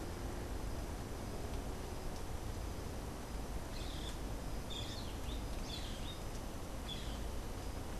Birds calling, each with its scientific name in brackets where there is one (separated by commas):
Cabanis's Wren (Cantorchilus modestus), Boat-billed Flycatcher (Megarynchus pitangua)